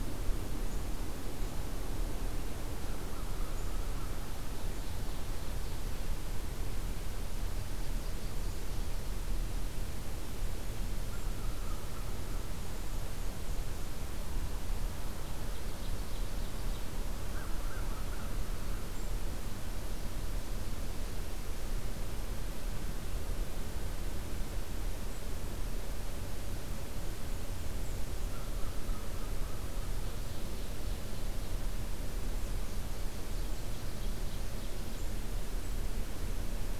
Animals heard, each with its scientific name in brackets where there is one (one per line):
American Crow (Corvus brachyrhynchos)
Black-and-white Warbler (Mniotilta varia)
Ovenbird (Seiurus aurocapilla)